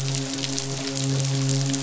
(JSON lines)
{"label": "biophony, midshipman", "recorder": "SoundTrap 500"}